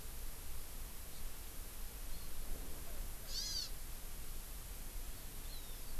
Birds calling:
Hawaii Amakihi (Chlorodrepanis virens)

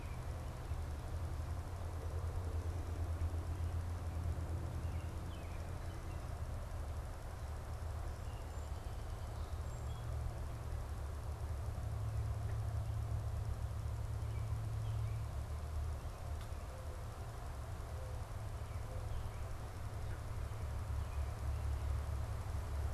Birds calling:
Mourning Dove (Zenaida macroura)
Song Sparrow (Melospiza melodia)
American Robin (Turdus migratorius)

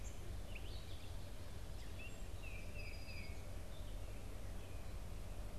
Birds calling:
Gray Catbird (Dumetella carolinensis)
Song Sparrow (Melospiza melodia)
Tufted Titmouse (Baeolophus bicolor)

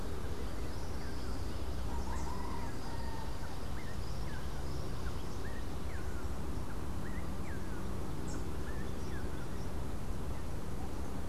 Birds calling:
Rufous-naped Wren (Campylorhynchus rufinucha)

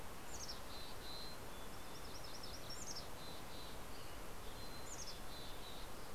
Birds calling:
Mountain Chickadee (Poecile gambeli)
Western Tanager (Piranga ludoviciana)
MacGillivray's Warbler (Geothlypis tolmiei)

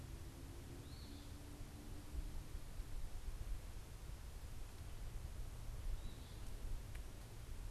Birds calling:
Eastern Phoebe (Sayornis phoebe)

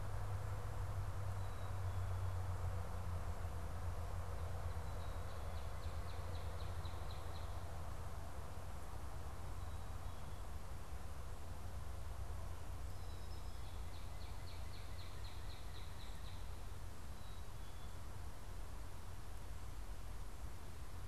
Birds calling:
Black-capped Chickadee (Poecile atricapillus)
Northern Cardinal (Cardinalis cardinalis)

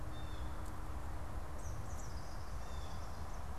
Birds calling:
Eastern Kingbird (Tyrannus tyrannus)
Blue Jay (Cyanocitta cristata)

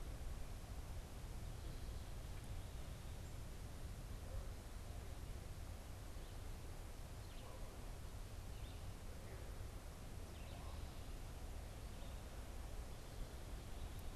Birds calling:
Red-eyed Vireo (Vireo olivaceus)

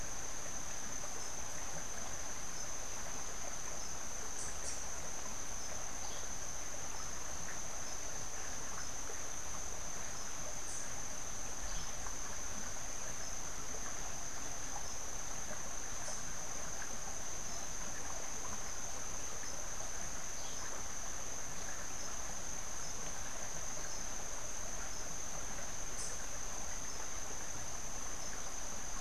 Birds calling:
Cabanis's Wren (Cantorchilus modestus)

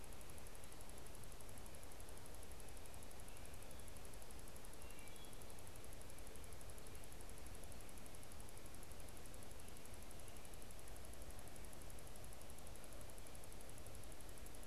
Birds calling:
Wood Thrush (Hylocichla mustelina)

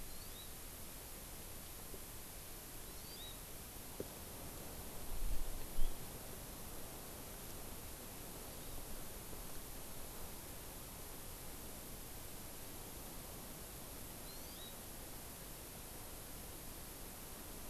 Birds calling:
Hawaii Amakihi (Chlorodrepanis virens)
House Finch (Haemorhous mexicanus)

